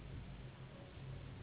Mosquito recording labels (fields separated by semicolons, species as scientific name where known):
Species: Anopheles gambiae s.s.; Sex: female; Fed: unfed; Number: one; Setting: insect culture